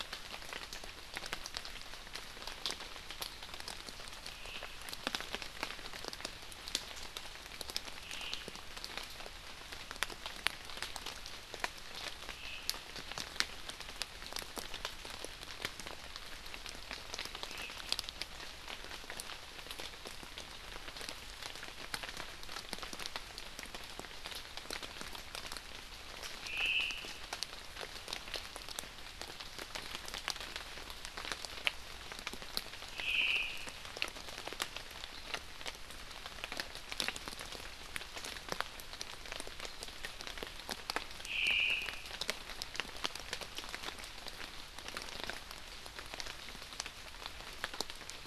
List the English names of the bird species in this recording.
Omao